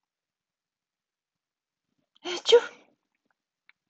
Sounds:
Sneeze